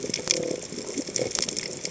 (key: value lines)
label: biophony
recorder: HydroMoth